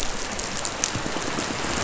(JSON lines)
{"label": "biophony", "recorder": "SoundTrap 500"}